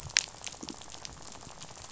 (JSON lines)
{"label": "biophony, rattle", "recorder": "SoundTrap 500"}